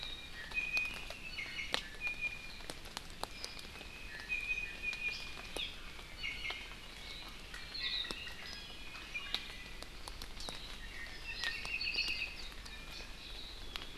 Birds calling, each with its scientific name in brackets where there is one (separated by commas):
Apapane (Himatione sanguinea), Iiwi (Drepanis coccinea), Hawaii Amakihi (Chlorodrepanis virens)